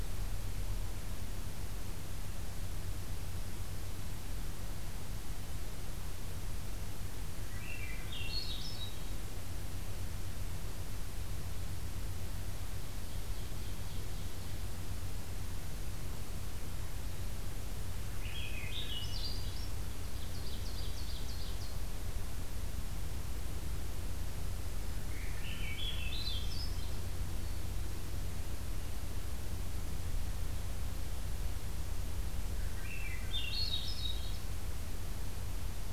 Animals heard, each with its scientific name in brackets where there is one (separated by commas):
Black-throated Green Warbler (Setophaga virens), Ovenbird (Seiurus aurocapilla), Swainson's Thrush (Catharus ustulatus)